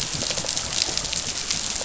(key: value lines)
label: biophony, rattle response
recorder: SoundTrap 500